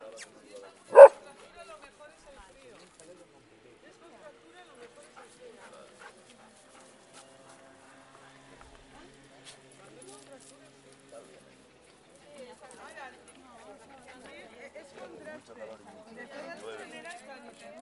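A short, loud, high-pitched squeak. 0.0 - 0.8
A dog barks loudly. 0.9 - 1.2
People are having a muffled conversation in the background. 1.4 - 17.8
A dog pants rhythmically and continuously in a muffled manner. 5.0 - 8.4
Footsteps rustling loudly and discontinuously. 5.5 - 12.9
A muffled metallic clink. 13.1 - 13.6

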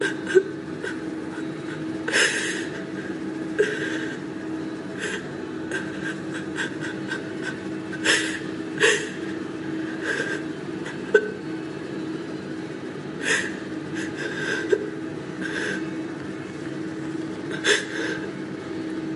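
A person is crying. 0.0 - 19.2

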